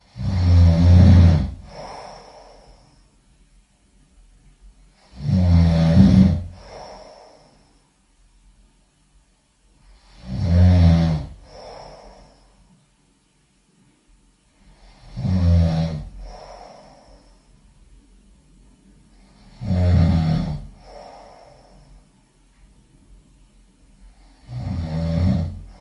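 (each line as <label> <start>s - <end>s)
Person snores loudly once. 0.2s - 2.3s
Person snoring with inhalations. 0.2s - 1.6s
Person exhales air while snoring. 1.7s - 2.4s
Person snoring with inhalations. 5.1s - 6.5s
Person snores loudly once. 5.2s - 7.3s
Person exhales air while snoring. 6.6s - 7.2s
Person snores loudly once. 10.1s - 12.2s
Person snoring with inhalations. 10.2s - 11.3s
Person exhales air while snoring. 11.5s - 12.2s
Person snores loudly once. 14.9s - 16.8s
Person snoring with inhalations. 15.0s - 16.2s
Person exhales air while snoring. 16.2s - 16.8s
Person snores loudly once. 19.5s - 21.6s
Person snoring with inhalations. 19.6s - 20.8s
Person exhales air while snoring. 20.8s - 21.5s
Person snores loudly once. 24.4s - 25.8s
Person snoring with inhalations. 24.4s - 25.8s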